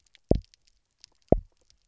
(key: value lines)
label: biophony, double pulse
recorder: SoundTrap 300